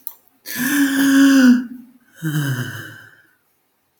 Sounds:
Sigh